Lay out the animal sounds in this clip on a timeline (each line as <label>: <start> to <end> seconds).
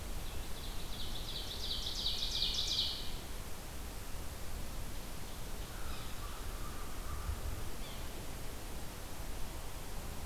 Ovenbird (Seiurus aurocapilla): 0.0 to 3.3 seconds
Tufted Titmouse (Baeolophus bicolor): 2.0 to 3.2 seconds
American Crow (Corvus brachyrhynchos): 5.6 to 7.6 seconds
Yellow-bellied Sapsucker (Sphyrapicus varius): 5.8 to 6.1 seconds
Yellow-bellied Sapsucker (Sphyrapicus varius): 7.7 to 8.1 seconds